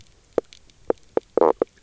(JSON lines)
{"label": "biophony, knock croak", "recorder": "SoundTrap 300"}